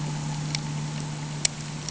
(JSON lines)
{"label": "anthrophony, boat engine", "recorder": "HydroMoth"}